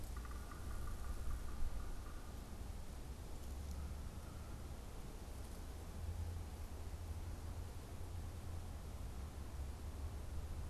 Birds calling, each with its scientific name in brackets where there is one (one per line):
Yellow-bellied Sapsucker (Sphyrapicus varius)